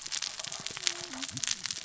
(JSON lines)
{"label": "biophony, cascading saw", "recorder": "SoundTrap 600 or HydroMoth"}